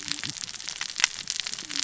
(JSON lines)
{"label": "biophony, cascading saw", "recorder": "SoundTrap 600 or HydroMoth"}